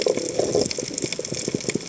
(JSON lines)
{"label": "biophony", "recorder": "HydroMoth"}